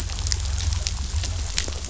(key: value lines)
label: anthrophony, boat engine
recorder: SoundTrap 500